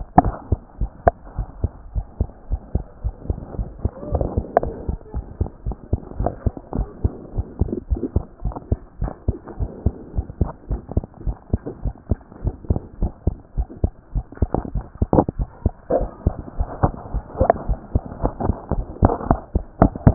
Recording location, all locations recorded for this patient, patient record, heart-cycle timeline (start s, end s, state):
pulmonary valve (PV)
aortic valve (AV)+pulmonary valve (PV)+tricuspid valve (TV)+mitral valve (MV)
#Age: Child
#Sex: Female
#Height: 123.0 cm
#Weight: 25.3 kg
#Pregnancy status: False
#Murmur: Absent
#Murmur locations: nan
#Most audible location: nan
#Systolic murmur timing: nan
#Systolic murmur shape: nan
#Systolic murmur grading: nan
#Systolic murmur pitch: nan
#Systolic murmur quality: nan
#Diastolic murmur timing: nan
#Diastolic murmur shape: nan
#Diastolic murmur grading: nan
#Diastolic murmur pitch: nan
#Diastolic murmur quality: nan
#Outcome: Normal
#Campaign: 2014 screening campaign
0.00	0.20	diastole
0.20	0.34	S1
0.34	0.50	systole
0.50	0.60	S2
0.60	0.80	diastole
0.80	0.90	S1
0.90	1.04	systole
1.04	1.14	S2
1.14	1.36	diastole
1.36	1.48	S1
1.48	1.62	systole
1.62	1.70	S2
1.70	1.94	diastole
1.94	2.06	S1
2.06	2.18	systole
2.18	2.28	S2
2.28	2.50	diastole
2.50	2.60	S1
2.60	2.74	systole
2.74	2.84	S2
2.84	3.04	diastole
3.04	3.14	S1
3.14	3.28	systole
3.28	3.38	S2
3.38	3.58	diastole
3.58	3.68	S1
3.68	3.82	systole
3.82	3.90	S2
3.90	4.12	diastole
4.12	4.26	S1
4.26	4.36	systole
4.36	4.44	S2
4.44	4.62	diastole
4.62	4.74	S1
4.74	4.88	systole
4.88	4.98	S2
4.98	5.14	diastole
5.14	5.26	S1
5.26	5.40	systole
5.40	5.48	S2
5.48	5.66	diastole
5.66	5.76	S1
5.76	5.92	systole
5.92	6.00	S2
6.00	6.18	diastole
6.18	6.32	S1
6.32	6.44	systole
6.44	6.52	S2
6.52	6.76	diastole
6.76	6.88	S1
6.88	7.02	systole
7.02	7.12	S2
7.12	7.36	diastole
7.36	7.46	S1
7.46	7.60	systole
7.60	7.70	S2
7.70	7.90	diastole
7.90	8.02	S1
8.02	8.14	systole
8.14	8.24	S2
8.24	8.44	diastole
8.44	8.54	S1
8.54	8.70	systole
8.70	8.78	S2
8.78	9.00	diastole
9.00	9.12	S1
9.12	9.26	systole
9.26	9.36	S2
9.36	9.60	diastole
9.60	9.70	S1
9.70	9.84	systole
9.84	9.94	S2
9.94	10.16	diastole
10.16	10.26	S1
10.26	10.40	systole
10.40	10.50	S2
10.50	10.70	diastole
10.70	10.80	S1
10.80	10.94	systole
10.94	11.04	S2
11.04	11.26	diastole
11.26	11.36	S1
11.36	11.52	systole
11.52	11.60	S2
11.60	11.84	diastole
11.84	11.94	S1
11.94	12.10	systole
12.10	12.18	S2
12.18	12.44	diastole
12.44	12.54	S1
12.54	12.68	systole
12.68	12.80	S2
12.80	13.00	diastole
13.00	13.12	S1
13.12	13.26	systole
13.26	13.36	S2
13.36	13.56	diastole
13.56	13.68	S1
13.68	13.82	systole
13.82	13.92	S2
13.92	14.14	diastole
14.14	14.24	S1
14.24	14.40	systole
14.40	14.50	S2
14.50	14.74	diastole
14.74	14.84	S1
14.84	15.02	systole
15.02	15.08	S2
15.08	15.38	diastole
15.38	15.48	S1
15.48	15.64	systole
15.64	15.72	S2
15.72	15.96	diastole
15.96	16.08	S1
16.08	16.24	systole
16.24	16.34	S2
16.34	16.58	diastole
16.58	16.68	S1
16.68	16.82	systole
16.82	16.94	S2
16.94	17.14	diastole
17.14	17.24	S1
17.24	17.38	systole
17.38	17.48	S2
17.48	17.68	diastole
17.68	17.78	S1
17.78	17.94	systole
17.94	18.02	S2
18.02	18.22	diastole
18.22	18.34	S1
18.34	18.44	systole
18.44	18.54	S2
18.54	18.72	diastole
18.72	18.86	S1
18.86	19.02	systole
19.02	19.12	S2
19.12	19.28	diastole
19.28	19.38	S1
19.38	19.54	systole
19.54	19.62	S2
19.62	19.80	diastole
19.80	19.92	S1
19.92	20.06	systole
20.06	20.14	S2